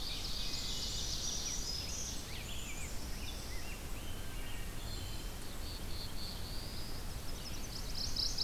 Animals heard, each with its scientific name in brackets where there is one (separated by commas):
unidentified call, Ovenbird (Seiurus aurocapilla), Black-throated Blue Warbler (Setophaga caerulescens), Rose-breasted Grosbeak (Pheucticus ludovicianus), Black-capped Chickadee (Poecile atricapillus), Wood Thrush (Hylocichla mustelina), Black-throated Green Warbler (Setophaga virens), Mourning Warbler (Geothlypis philadelphia), Chestnut-sided Warbler (Setophaga pensylvanica), Red-eyed Vireo (Vireo olivaceus)